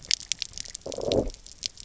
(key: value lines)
label: biophony, low growl
recorder: SoundTrap 300